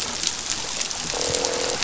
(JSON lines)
{"label": "biophony, croak", "recorder": "SoundTrap 500"}